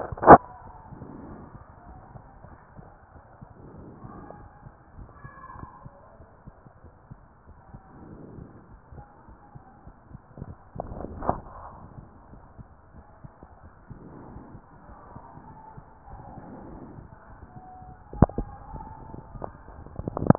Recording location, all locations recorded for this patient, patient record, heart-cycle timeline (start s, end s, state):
aortic valve (AV)
aortic valve (AV)+pulmonary valve (PV)+tricuspid valve (TV)+mitral valve (MV)
#Age: Child
#Sex: Male
#Height: 153.0 cm
#Weight: 79.9 kg
#Pregnancy status: False
#Murmur: Absent
#Murmur locations: nan
#Most audible location: nan
#Systolic murmur timing: nan
#Systolic murmur shape: nan
#Systolic murmur grading: nan
#Systolic murmur pitch: nan
#Systolic murmur quality: nan
#Diastolic murmur timing: nan
#Diastolic murmur shape: nan
#Diastolic murmur grading: nan
#Diastolic murmur pitch: nan
#Diastolic murmur quality: nan
#Outcome: Abnormal
#Campaign: 2015 screening campaign
0.00	1.85	unannotated
1.85	1.99	S1
1.99	2.14	systole
2.14	2.24	S2
2.24	2.42	diastole
2.42	2.62	S1
2.62	2.75	systole
2.75	2.88	S2
2.88	3.12	diastole
3.12	3.26	S1
3.26	3.39	systole
3.39	3.48	S2
3.48	3.74	diastole
3.74	3.85	S1
3.85	4.02	systole
4.02	4.14	S2
4.14	4.38	diastole
4.38	4.50	S1
4.50	4.62	systole
4.62	4.72	S2
4.72	4.95	diastole
4.95	5.10	S1
5.10	5.22	systole
5.22	5.30	S2
5.30	5.56	diastole
5.56	5.68	S1
5.68	5.84	systole
5.84	5.92	S2
5.92	6.17	diastole
6.17	6.28	S1
6.28	6.42	systole
6.42	6.54	S2
6.54	6.81	diastole
6.81	6.92	S1
6.92	7.06	systole
7.06	7.18	S2
7.18	7.45	diastole
7.45	7.56	S1
7.56	7.70	systole
7.70	7.80	S2
7.80	8.06	diastole
8.06	8.20	S1
8.20	8.32	systole
8.32	8.46	S2
8.46	8.70	diastole
8.70	8.80	S1
8.80	8.92	systole
8.92	9.06	S2
9.06	9.27	diastole
9.27	9.42	S1
9.42	9.53	systole
9.53	9.62	S2
9.62	9.84	diastole
9.84	9.98	S1
9.98	10.10	systole
10.10	10.20	S2
10.20	20.38	unannotated